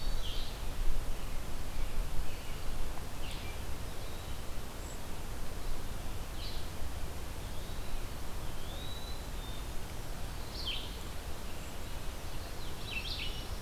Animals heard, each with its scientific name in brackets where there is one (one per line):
Red-eyed Vireo (Vireo olivaceus)
Eastern Wood-Pewee (Contopus virens)
American Robin (Turdus migratorius)
Black-throated Green Warbler (Setophaga virens)
Common Yellowthroat (Geothlypis trichas)